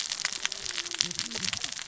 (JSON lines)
{"label": "biophony, cascading saw", "recorder": "SoundTrap 600 or HydroMoth"}